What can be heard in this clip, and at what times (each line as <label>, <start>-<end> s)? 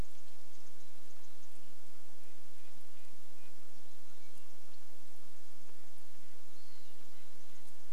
unidentified bird chip note, 0-2 s
Red-breasted Nuthatch song, 0-8 s
Western Wood-Pewee song, 6-8 s